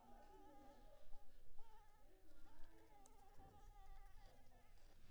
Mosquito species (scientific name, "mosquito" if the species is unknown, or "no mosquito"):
Anopheles maculipalpis